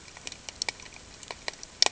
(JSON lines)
{"label": "ambient", "recorder": "HydroMoth"}